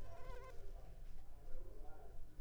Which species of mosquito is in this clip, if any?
Culex pipiens complex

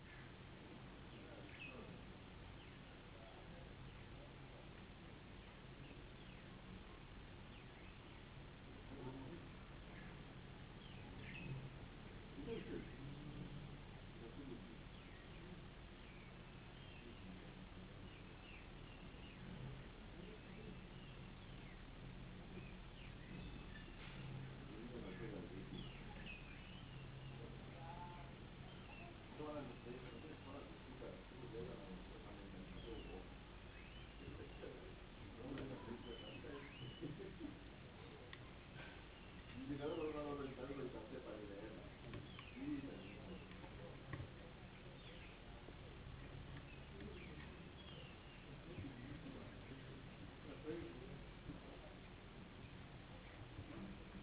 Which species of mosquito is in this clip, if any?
no mosquito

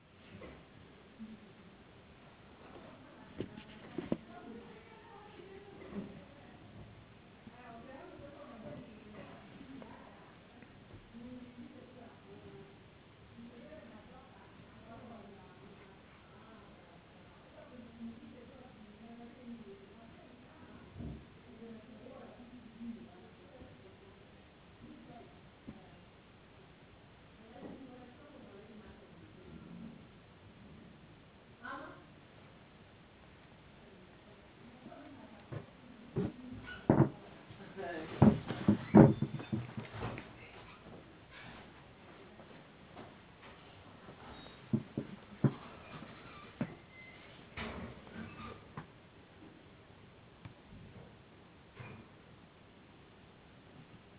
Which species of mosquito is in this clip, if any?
no mosquito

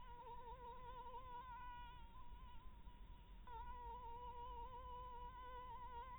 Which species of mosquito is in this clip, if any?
Anopheles maculatus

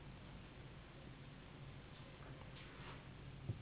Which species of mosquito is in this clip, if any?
Anopheles gambiae s.s.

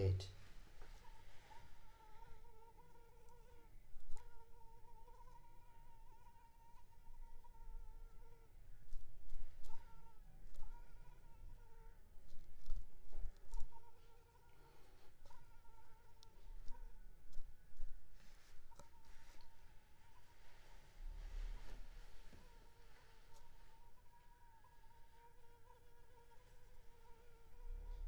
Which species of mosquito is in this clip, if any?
Anopheles arabiensis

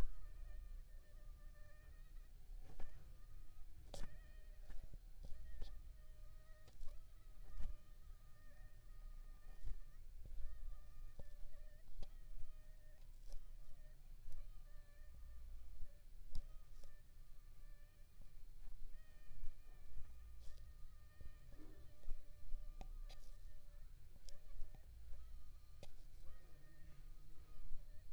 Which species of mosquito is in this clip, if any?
Aedes aegypti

